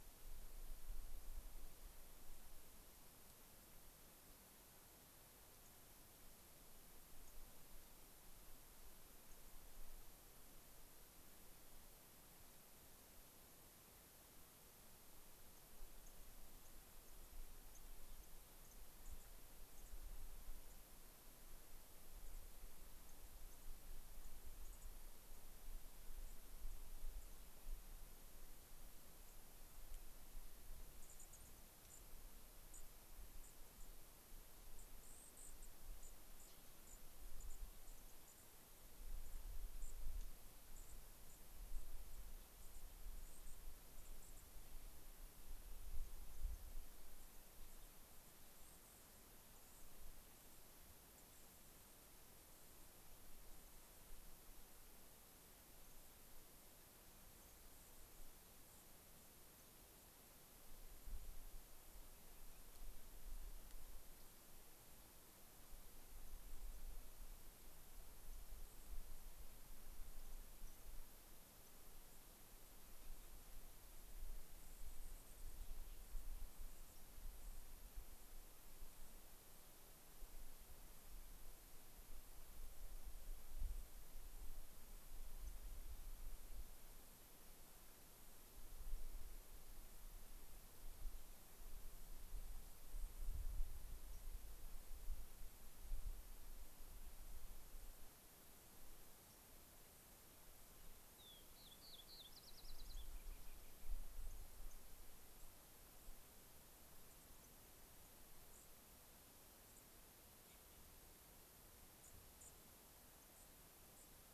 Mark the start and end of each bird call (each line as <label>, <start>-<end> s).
White-crowned Sparrow (Zonotrichia leucophrys), 5.6-5.7 s
White-crowned Sparrow (Zonotrichia leucophrys), 7.2-7.3 s
White-crowned Sparrow (Zonotrichia leucophrys), 9.2-9.3 s
White-crowned Sparrow (Zonotrichia leucophrys), 15.4-17.8 s
White-crowned Sparrow (Zonotrichia leucophrys), 18.6-18.7 s
White-crowned Sparrow (Zonotrichia leucophrys), 19.0-19.2 s
White-crowned Sparrow (Zonotrichia leucophrys), 19.7-19.9 s
White-crowned Sparrow (Zonotrichia leucophrys), 20.6-20.7 s
White-crowned Sparrow (Zonotrichia leucophrys), 22.2-22.4 s
White-crowned Sparrow (Zonotrichia leucophrys), 23.0-23.1 s
White-crowned Sparrow (Zonotrichia leucophrys), 24.2-24.3 s
White-crowned Sparrow (Zonotrichia leucophrys), 24.6-24.9 s
White-crowned Sparrow (Zonotrichia leucophrys), 26.1-26.4 s
White-crowned Sparrow (Zonotrichia leucophrys), 27.1-27.3 s
White-crowned Sparrow (Zonotrichia leucophrys), 29.2-29.4 s
White-crowned Sparrow (Zonotrichia leucophrys), 30.9-31.5 s
White-crowned Sparrow (Zonotrichia leucophrys), 31.8-32.0 s
White-crowned Sparrow (Zonotrichia leucophrys), 32.6-32.9 s
White-crowned Sparrow (Zonotrichia leucophrys), 33.3-33.9 s
White-crowned Sparrow (Zonotrichia leucophrys), 34.7-36.5 s
White-crowned Sparrow (Zonotrichia leucophrys), 36.8-37.0 s
White-crowned Sparrow (Zonotrichia leucophrys), 37.3-38.5 s
White-crowned Sparrow (Zonotrichia leucophrys), 39.2-39.4 s
White-crowned Sparrow (Zonotrichia leucophrys), 39.7-40.2 s
White-crowned Sparrow (Zonotrichia leucophrys), 40.6-40.9 s
White-crowned Sparrow (Zonotrichia leucophrys), 41.2-41.3 s
White-crowned Sparrow (Zonotrichia leucophrys), 41.6-44.4 s
White-crowned Sparrow (Zonotrichia leucophrys), 47.0-51.9 s
White-crowned Sparrow (Zonotrichia leucophrys), 57.3-58.9 s
unidentified bird, 62.0-62.6 s
White-crowned Sparrow (Zonotrichia leucophrys), 68.2-68.9 s
White-crowned Sparrow (Zonotrichia leucophrys), 70.1-70.8 s
White-crowned Sparrow (Zonotrichia leucophrys), 71.6-71.7 s
White-crowned Sparrow (Zonotrichia leucophrys), 74.5-77.7 s
Fox Sparrow (Passerella iliaca), 85.4-85.5 s
White-crowned Sparrow (Zonotrichia leucophrys), 92.8-93.4 s
Fox Sparrow (Passerella iliaca), 94.0-94.2 s
Fox Sparrow (Passerella iliaca), 99.2-99.4 s
Fox Sparrow (Passerella iliaca), 101.0-103.9 s
White-crowned Sparrow (Zonotrichia leucophrys), 102.8-103.0 s
White-crowned Sparrow (Zonotrichia leucophrys), 104.1-104.3 s
White-crowned Sparrow (Zonotrichia leucophrys), 104.6-104.7 s
White-crowned Sparrow (Zonotrichia leucophrys), 105.3-105.5 s
White-crowned Sparrow (Zonotrichia leucophrys), 107.0-107.5 s
White-crowned Sparrow (Zonotrichia leucophrys), 108.5-108.6 s
White-crowned Sparrow (Zonotrichia leucophrys), 109.6-109.8 s
White-crowned Sparrow (Zonotrichia leucophrys), 111.9-112.5 s
White-crowned Sparrow (Zonotrichia leucophrys), 113.2-113.4 s
White-crowned Sparrow (Zonotrichia leucophrys), 113.9-114.1 s